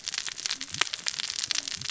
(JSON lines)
{"label": "biophony, cascading saw", "recorder": "SoundTrap 600 or HydroMoth"}